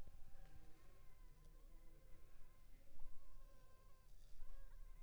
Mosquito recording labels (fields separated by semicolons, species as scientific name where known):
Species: Anopheles funestus s.s.; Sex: female; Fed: unfed; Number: one; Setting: cup